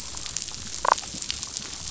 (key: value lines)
label: biophony, damselfish
recorder: SoundTrap 500